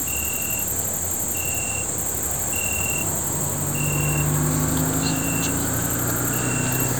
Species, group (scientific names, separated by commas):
Oecanthus pellucens, Orthoptera